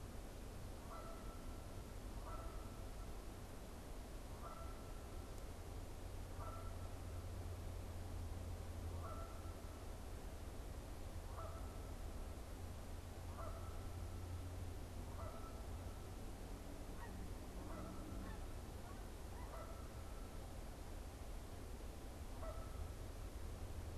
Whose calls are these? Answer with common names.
Canada Goose, Snow Goose